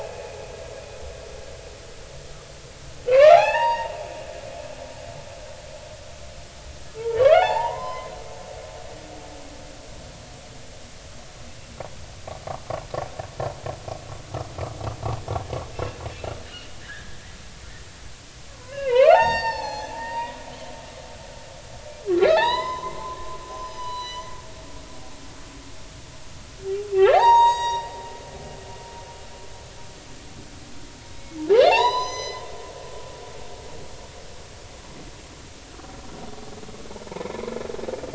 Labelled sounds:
3.1	3.9	humpback whale, 0.80 to 4.7 kHz
6.9	8.1	humpback whale, 0.80 to 5.2 kHz
15.7	16.0	humpback whale, 2.6 to 2.8 kHz
16.8	17.2	humpback whale, 1.5 to 2.0 kHz
18.6	20.4	humpback whale, 0.80 to 7.4 kHz
22.2	24.3	humpback whale, 0.80 to 7.2 kHz
26.9	27.9	humpback whale, 0.80 to 7.7 kHz
31.6	32.4	humpback whale, 0.80 to 8.0 kHz
37.1	37.5	humpback whale, 2.0 to 2.3 kHz

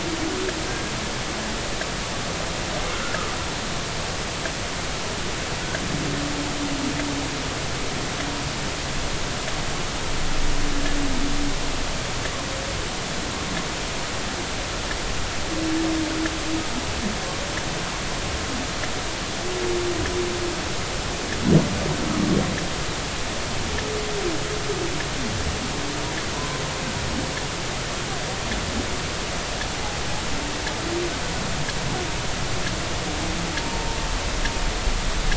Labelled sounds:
26.4	26.6	humpback whale, 0.96 to 1.1 kHz
33.6	33.9	humpback whale, 0.86 to 0.96 kHz

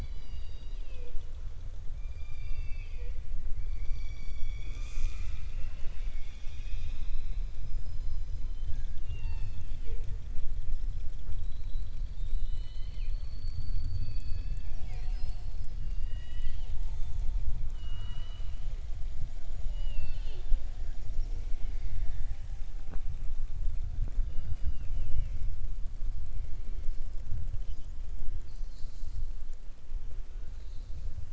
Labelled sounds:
2.2	3.1	killer whale, southern resident, 0.49 to 4.8 kHz
15.8	16.7	killer whale, southern resident, 1.9 to 7.7 kHz
17.6	18.7	killer whale, southern resident, 0.87 to 5.8 kHz
19.6	20.5	killer whale, southern resident, 0.39 to 6.6 kHz

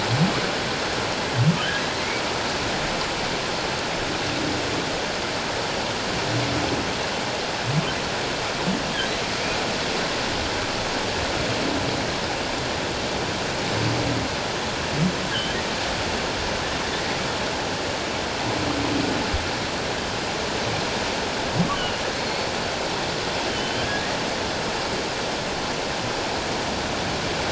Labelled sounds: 15.3	15.6	humpback whale, 2.9 to 3.3 kHz
21.7	22.5	humpback whale, 2.8 to 4.6 kHz
23.5	24.1	humpback whale, 1.5 to 3.2 kHz

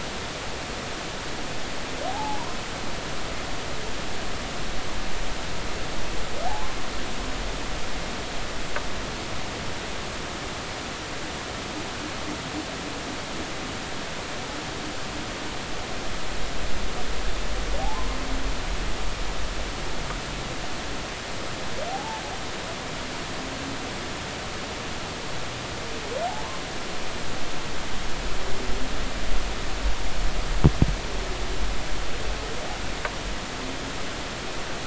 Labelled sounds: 2.1	2.4	humpback whale, 0.80 to 0.96 kHz
17.8	18.2	humpback whale, 0.80 to 1.1 kHz
21.9	22.2	humpback whale, 0.80 to 0.96 kHz

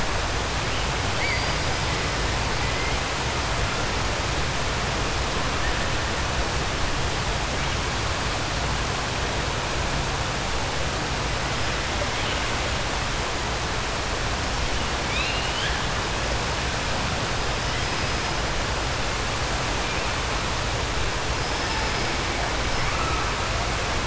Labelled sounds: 1.1	1.6	killer whale, 4.5 to 4.9 kHz
15.0	15.8	killer whale, 1.6 to 4.6 kHz

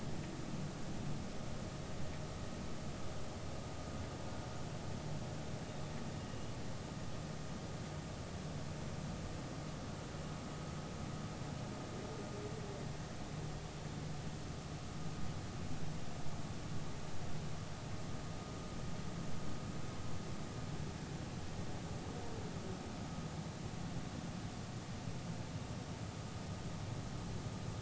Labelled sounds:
6.2	6.6	humpback whale, 2.8 to 2.9 kHz

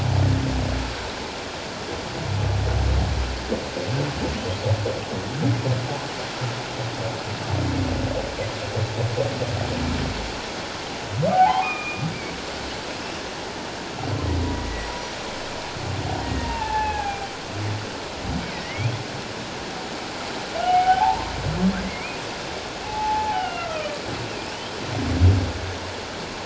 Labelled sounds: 11.3	12.0	humpback whale, 0.78 to 2.5 kHz
16.2	17.3	humpback whale, 0.78 to 2.8 kHz
18.4	18.9	humpback whale, 1.8 to 2.5 kHz
20.6	21.3	humpback whale, 0.78 to 1.6 kHz
21.8	22.2	humpback whale, 2.0 to 2.6 kHz
22.8	24.0	humpback whale, 0.78 to 3.0 kHz

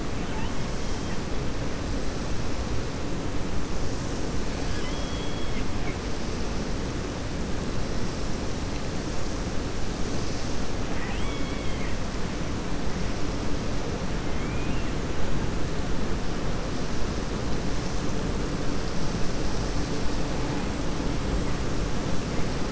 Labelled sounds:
4.5	5.7	killer whale, 1.4 to 5.2 kHz
10.8	11.9	killer whale, 0.87 to 3.4 kHz
14.3	14.9	killer whale, 1.9 to 2.9 kHz

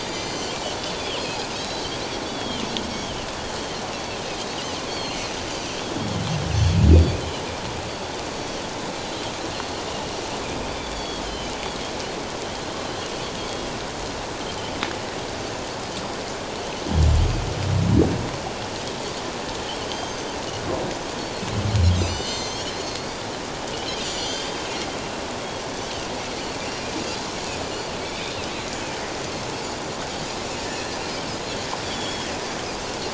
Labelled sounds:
0.1	1.2	Pacific white-sided dolphin, 2.0 to 7.5 kHz
1.5	1.9	Pacific white-sided dolphin, 3.7 to 6.7 kHz
2.3	3.3	Pacific white-sided dolphin, 2.8 to 5.7 kHz
4.9	5.2	Pacific white-sided dolphin, 3.1 to 4.6 kHz
6.9	7.2	Pacific white-sided dolphin, 4.5 to 4.8 kHz
10.9	11.9	Pacific white-sided dolphin, 3.0 to 4.6 kHz
19.9	20.4	Pacific white-sided dolphin, 4.5 to 6.5 kHz
21.9	23.2	Pacific white-sided dolphin, 2.0 to 7.6 kHz
23.7	24.5	Pacific white-sided dolphin, 2.8 to 7.2 kHz
28.0	28.3	Pacific white-sided dolphin, 2.2 to 3.6 kHz
31.8	32.3	Pacific white-sided dolphin, 3.0 to 3.6 kHz

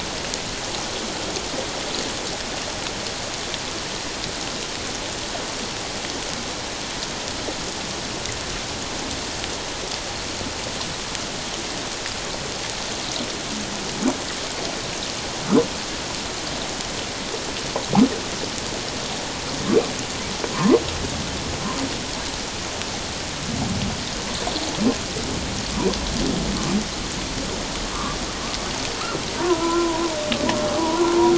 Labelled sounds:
20.5	20.8	humpback whale, 0.88 to 1.1 kHz
27.9	28.2	humpback whale, 0.97 to 1.2 kHz
29.4	31.0	humpback whale, 0.91 to 1.5 kHz

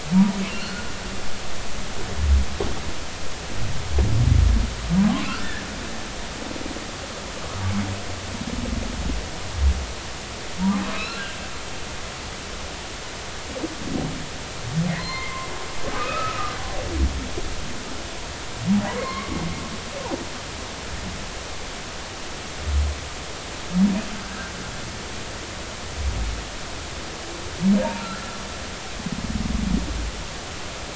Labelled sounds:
0.4	0.9	humpback whale, 1.3 to 4.5 kHz
5.3	5.6	humpback whale, 1.3 to 1.9 kHz
10.9	11.4	humpback whale, 1.2 to 4.2 kHz
14.9	15.5	humpback whale, 0.96 to 4.3 kHz
15.9	16.6	humpback whale, 1.2 to 2.6 kHz
18.9	19.4	humpback whale, 0.93 to 4.4 kHz
24.2	24.5	humpback whale, 1.4 to 1.7 kHz

